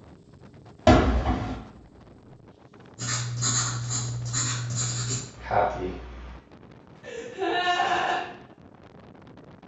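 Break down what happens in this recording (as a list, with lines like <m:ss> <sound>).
0:01 fireworks can be heard
0:03 the sound of writing
0:05 someone says "happy"
0:07 someone gasps
a soft steady noise runs about 25 dB below the sounds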